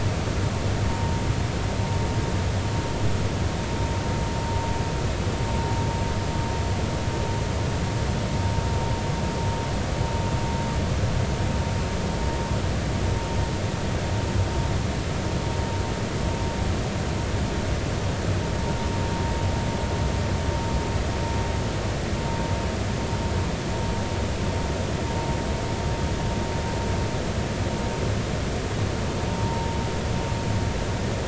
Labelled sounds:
29.3	29.8	vessel noise, 0.86 to 0.99 kHz

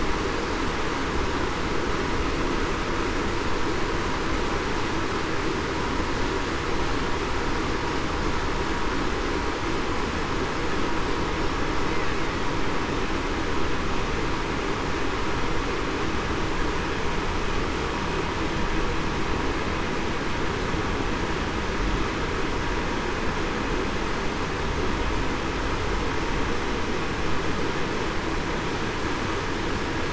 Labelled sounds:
11.3	11.6	killer whale, Bigg's (transient), 5.4 to 5.5 kHz

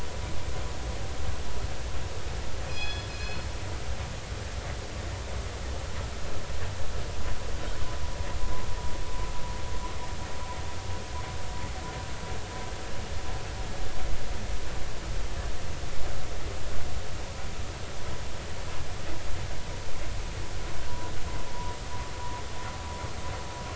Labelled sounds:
2.6	3.5	killer whale, northern resident, G clan, call N24ii, 2.4 to 5.2 kHz
21.5	21.8	vessel noise, 0.93 to 1.0 kHz

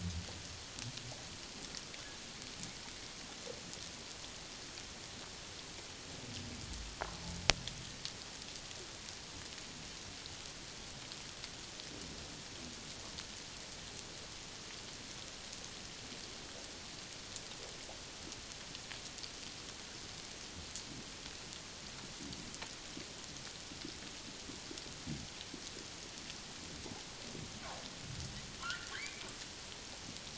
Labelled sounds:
28.6	29.3	humpback whale, 1.3 to 2.5 kHz

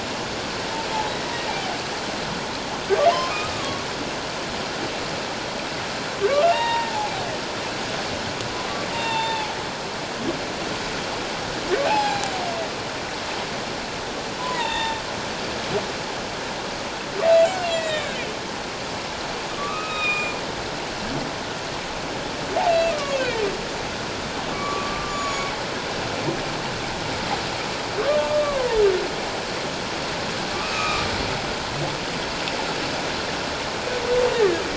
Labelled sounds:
3.1	3.9	humpback whale, 0.78 to 1.3 kHz
6.4	7.1	humpback whale, 0.78 to 3.8 kHz
8.9	9.6	humpback whale, 0.78 to 7.3 kHz
11.9	12.2	humpback whale, 0.78 to 0.94 kHz
14.4	15.0	humpback whale, 0.84 to 3.8 kHz
17.6	18.3	humpback whale, 1.5 to 7.8 kHz
19.5	20.4	humpback whale, 1.1 to 7.5 kHz
22.7	23.4	humpback whale, 1.1 to 2.8 kHz
24.5	25.5	humpback whale, 1.1 to 7.1 kHz
28.0	28.8	humpback whale, 0.84 to 1.2 kHz
30.5	31.1	humpback whale, 1.1 to 2.7 kHz

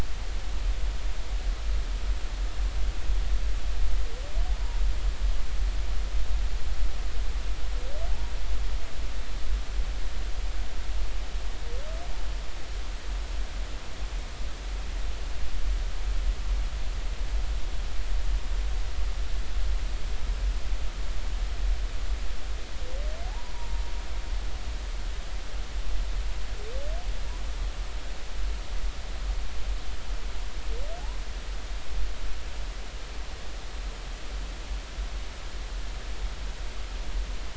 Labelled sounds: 23.2	23.8	humpback whale, 0.80 to 1.0 kHz

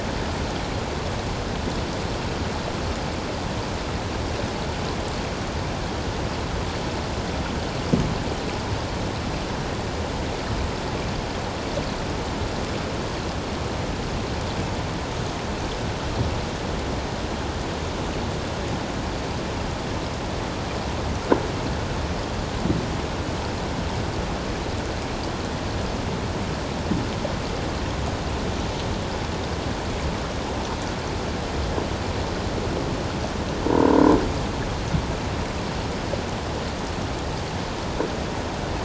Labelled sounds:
33.7	34.0	croaking sound likely from a nearby submerged object, 0.88 to 1.1 kHz

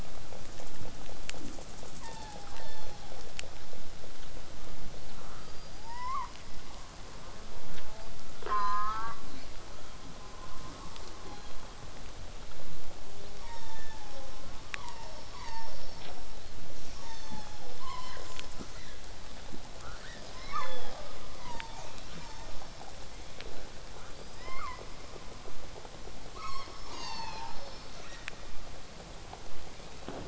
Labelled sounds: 2.0	3.3	killer whale, southern resident, 0.36 to 6.1 kHz
5.4	6.3	killer whale, southern resident, L pod, call S19, 0.58 to 5.6 kHz
7.8	9.2	killer whale, southern resident, J pod, call S04, 0.27 to 8.0 kHz
11.3	11.8	killer whale, southern resident, 0.76 to 4.5 kHz
13.2	16.1	killer whale, southern resident, call S36, 0.36 to 8.0 kHz
16.8	17.8	killer whale, southern resident, call S36, 0.36 to 8.0 kHz
17.8	18.3	killer whale, southern resident, 0.76 to 8.0 kHz
18.2	18.4	killer whale, southern resident, J pod, call S05, 0.18 to 8.0 kHz
18.7	19.0	killer whale, southern resident, 0.58 to 4.6 kHz
19.8	21.2	killer whale, southern resident, 0.31 to 7.2 kHz
24.1	24.8	killer whale, southern resident, 0.72 to 5.6 kHz
26.3	28.3	killer whale, southern resident, 0.40 to 8.0 kHz
29.7	30.1	killer whale, southern resident, 2.0 to 2.8 kHz

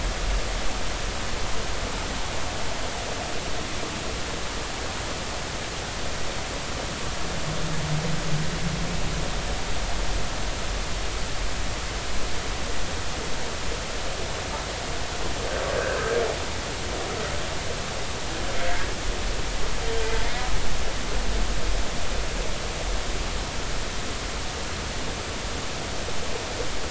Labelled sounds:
15.8	16.2	humpback whale, 1.4 to 1.7 kHz
18.6	18.8	humpback whale, 2.0 to 2.2 kHz

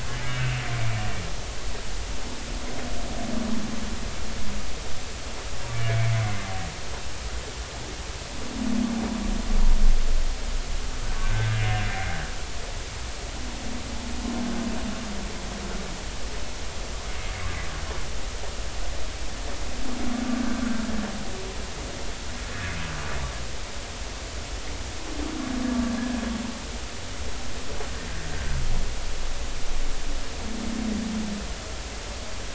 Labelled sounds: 0.3	0.6	humpback whale, 2.5 to 2.9 kHz
6.7	7.1	humpback whale, 2.1 to 2.4 kHz
11.2	12.2	humpback whale, 1.5 to 2.2 kHz
20.4	20.7	humpback whale, 1.5 to 1.6 kHz

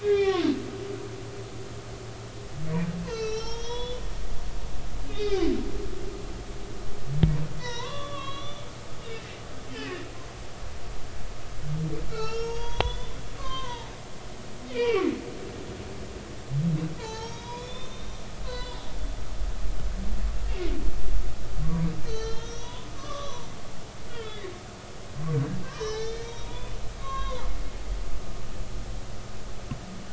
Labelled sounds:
0.0	0.5	humpback whale, 0.80 to 5.7 kHz
3.1	4.0	humpback whale, 0.83 to 6.4 kHz
5.1	5.5	humpback whale, 1.9 to 3.8 kHz
7.6	8.6	humpback whale, 0.90 to 6.0 kHz
9.0	9.3	humpback whale, 2.6 to 2.9 kHz
12.1	13.9	humpback whale, 0.80 to 6.9 kHz
14.7	15.1	humpback whale, 2.2 to 3.4 kHz
17.0	18.8	humpback whale, 0.83 to 5.7 kHz
21.6	23.5	humpback whale, 0.90 to 6.4 kHz
24.1	24.5	humpback whale, 1.2 to 3.9 kHz
25.3	27.5	humpback whale, 0.90 to 6.3 kHz
28.0	28.3	humpback whale, 3.2 to 6.0 kHz

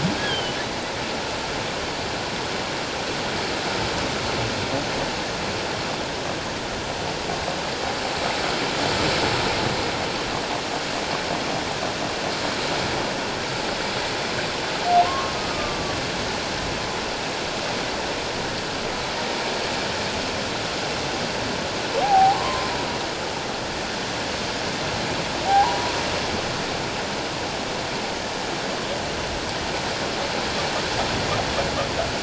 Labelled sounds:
0.2	0.6	humpback whale, 2.9 to 3.4 kHz
15.0	16.0	humpback whale, 1.0 to 1.4 kHz
22.0	22.7	humpback whale, 0.78 to 1.2 kHz
25.5	25.9	humpback whale, 0.78 to 1.1 kHz

